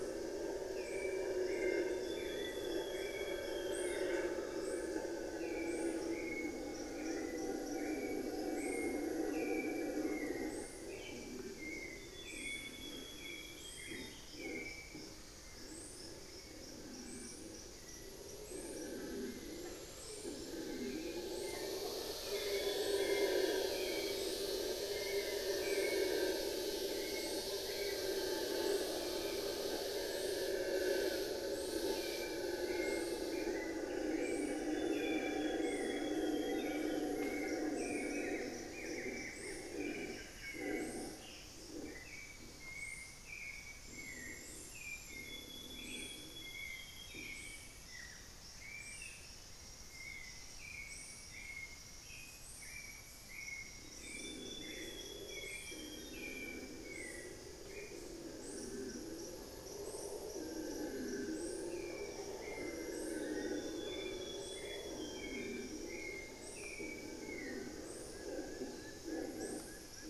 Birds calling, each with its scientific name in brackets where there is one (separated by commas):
unidentified bird, Buff-throated Woodcreeper (Xiphorhynchus guttatus), Amazonian Grosbeak (Cyanoloxia rothschildii), Plain-winged Antshrike (Thamnophilus schistaceus), Solitary Black Cacique (Cacicus solitarius), Black-faced Antthrush (Formicarius analis), Long-winged Antwren (Myrmotherula longipennis), Hauxwell's Thrush (Turdus hauxwelli)